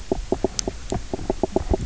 {"label": "biophony, knock croak", "recorder": "SoundTrap 300"}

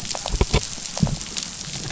{"label": "biophony", "recorder": "SoundTrap 500"}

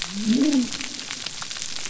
{"label": "biophony", "recorder": "SoundTrap 300"}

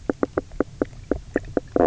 {"label": "biophony, knock croak", "recorder": "SoundTrap 300"}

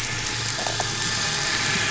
{"label": "anthrophony, boat engine", "recorder": "SoundTrap 500"}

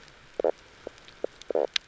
{"label": "biophony, knock croak", "recorder": "SoundTrap 300"}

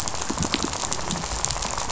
{"label": "biophony, rattle", "recorder": "SoundTrap 500"}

